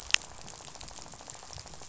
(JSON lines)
{"label": "biophony, rattle", "recorder": "SoundTrap 500"}